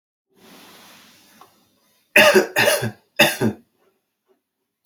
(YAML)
expert_labels:
- quality: good
  cough_type: dry
  dyspnea: false
  wheezing: false
  stridor: false
  choking: false
  congestion: false
  nothing: true
  diagnosis: healthy cough
  severity: pseudocough/healthy cough
age: 41
gender: male
respiratory_condition: false
fever_muscle_pain: false
status: COVID-19